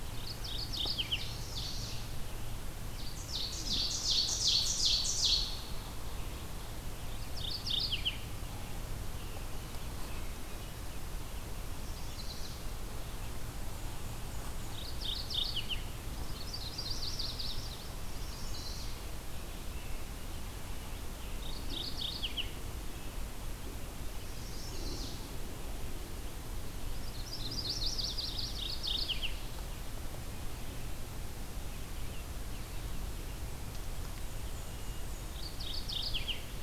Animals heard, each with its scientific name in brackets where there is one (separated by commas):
Yellow-rumped Warbler (Setophaga coronata), Chestnut-sided Warbler (Setophaga pensylvanica), Mourning Warbler (Geothlypis philadelphia), Black-and-white Warbler (Mniotilta varia), Ovenbird (Seiurus aurocapilla)